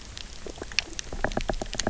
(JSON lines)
{"label": "biophony, knock", "recorder": "SoundTrap 300"}